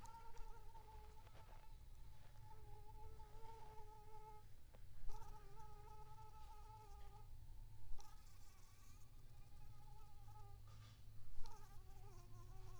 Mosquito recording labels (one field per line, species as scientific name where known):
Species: Anopheles arabiensis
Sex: female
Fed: unfed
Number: one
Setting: cup